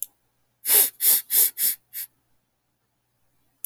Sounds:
Sniff